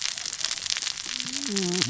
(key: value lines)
label: biophony, cascading saw
recorder: SoundTrap 600 or HydroMoth